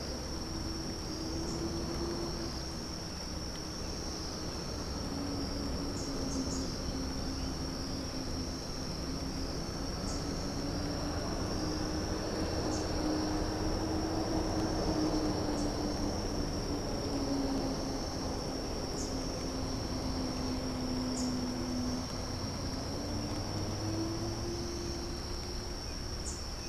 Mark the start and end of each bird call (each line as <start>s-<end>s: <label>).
5.8s-15.7s: Rufous-capped Warbler (Basileuterus rufifrons)
18.7s-26.6s: Rufous-capped Warbler (Basileuterus rufifrons)